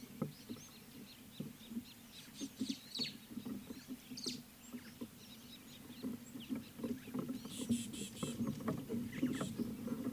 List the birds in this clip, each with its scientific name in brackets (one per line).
Rüppell's Starling (Lamprotornis purpuroptera)
Rattling Cisticola (Cisticola chiniana)